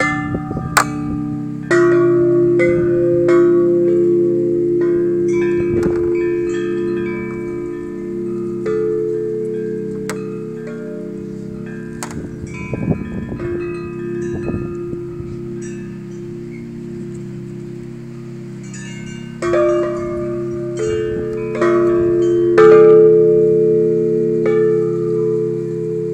Is it windy?
yes